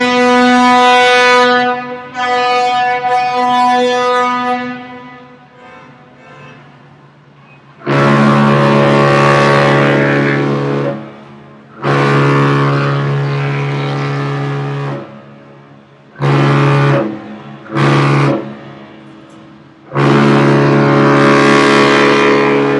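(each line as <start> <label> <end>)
0.0 A loud, sharp boat horn sounds. 4.9
5.5 A horn sounds repeatedly in the distance. 6.7
7.7 A loud, deep boat horn sounds. 11.1
11.8 A loud, deep boat horn sounds. 15.2
16.1 A loud, deep boat horn sounds. 18.6
19.9 A loud, deep boat horn sounds. 22.8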